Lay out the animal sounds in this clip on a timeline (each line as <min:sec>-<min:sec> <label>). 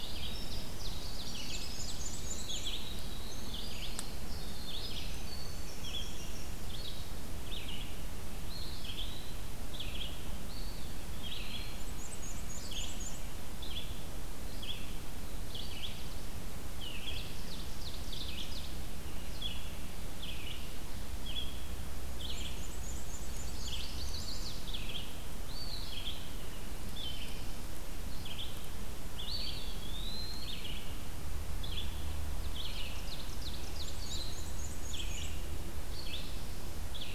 0:00.0-0:06.6 Winter Wren (Troglodytes hiemalis)
0:00.0-0:25.2 Red-eyed Vireo (Vireo olivaceus)
0:01.4-0:03.1 Black-and-white Warbler (Mniotilta varia)
0:08.4-0:09.5 Eastern Wood-Pewee (Contopus virens)
0:10.5-0:11.9 Eastern Wood-Pewee (Contopus virens)
0:11.6-0:13.6 Black-and-white Warbler (Mniotilta varia)
0:16.8-0:19.0 Ovenbird (Seiurus aurocapilla)
0:22.2-0:23.8 Black-and-white Warbler (Mniotilta varia)
0:23.3-0:24.6 Chestnut-sided Warbler (Setophaga pensylvanica)
0:25.3-0:26.4 Eastern Wood-Pewee (Contopus virens)
0:25.6-0:37.1 Red-eyed Vireo (Vireo olivaceus)
0:29.1-0:30.9 Eastern Wood-Pewee (Contopus virens)
0:32.3-0:34.4 Ovenbird (Seiurus aurocapilla)
0:33.5-0:35.7 Black-and-white Warbler (Mniotilta varia)